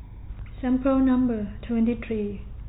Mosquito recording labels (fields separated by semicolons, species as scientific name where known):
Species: no mosquito; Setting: cup